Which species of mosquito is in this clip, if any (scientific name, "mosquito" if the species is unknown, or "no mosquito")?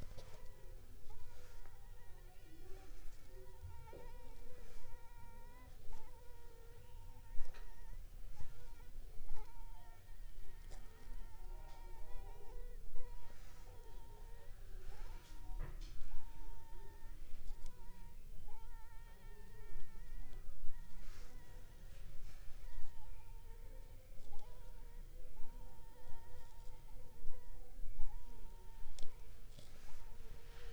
Anopheles funestus s.s.